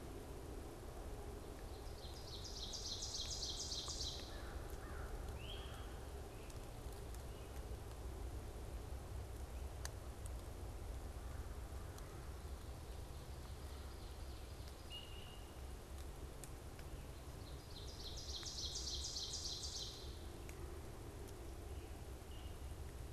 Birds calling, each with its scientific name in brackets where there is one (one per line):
Great Crested Flycatcher (Myiarchus crinitus)
Ovenbird (Seiurus aurocapilla)
American Crow (Corvus brachyrhynchos)